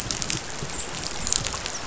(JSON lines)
{"label": "biophony, dolphin", "recorder": "SoundTrap 500"}